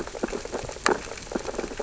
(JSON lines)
{"label": "biophony, sea urchins (Echinidae)", "recorder": "SoundTrap 600 or HydroMoth"}